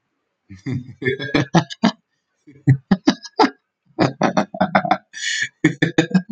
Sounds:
Laughter